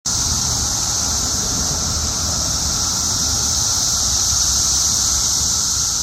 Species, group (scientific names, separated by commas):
Magicicada cassini, Cicadidae